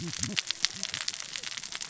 {"label": "biophony, cascading saw", "recorder": "SoundTrap 600 or HydroMoth"}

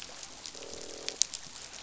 {"label": "biophony, croak", "recorder": "SoundTrap 500"}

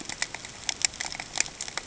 {"label": "ambient", "recorder": "HydroMoth"}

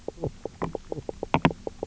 {"label": "biophony, knock croak", "recorder": "SoundTrap 300"}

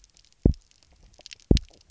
{"label": "biophony, double pulse", "recorder": "SoundTrap 300"}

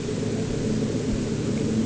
{"label": "anthrophony, boat engine", "recorder": "HydroMoth"}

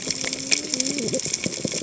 {"label": "biophony, cascading saw", "recorder": "HydroMoth"}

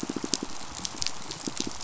{"label": "biophony, pulse", "recorder": "SoundTrap 500"}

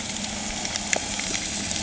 {"label": "anthrophony, boat engine", "recorder": "HydroMoth"}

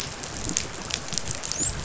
{"label": "biophony, dolphin", "recorder": "SoundTrap 500"}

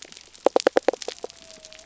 {"label": "biophony", "recorder": "SoundTrap 300"}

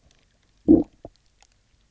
{"label": "biophony, low growl", "recorder": "SoundTrap 300"}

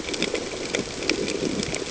{"label": "ambient", "recorder": "HydroMoth"}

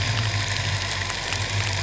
{"label": "anthrophony, boat engine", "recorder": "SoundTrap 300"}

